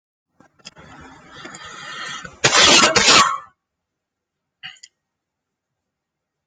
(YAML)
expert_labels:
- quality: poor
  cough_type: unknown
  dyspnea: false
  wheezing: false
  stridor: false
  choking: false
  congestion: false
  nothing: true
  diagnosis: upper respiratory tract infection
  severity: unknown
age: 21
gender: male
respiratory_condition: false
fever_muscle_pain: false
status: COVID-19